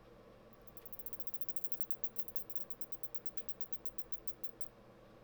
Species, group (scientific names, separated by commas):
Isophya rectipennis, Orthoptera